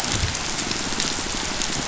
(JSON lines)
{"label": "biophony", "recorder": "SoundTrap 500"}